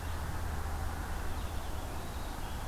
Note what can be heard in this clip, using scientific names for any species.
Vireo olivaceus, Poecile atricapillus